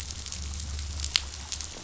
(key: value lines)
label: anthrophony, boat engine
recorder: SoundTrap 500